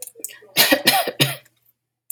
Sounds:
Cough